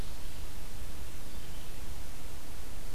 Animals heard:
forest ambience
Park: Marsh-Billings-Rockefeller National Historical Park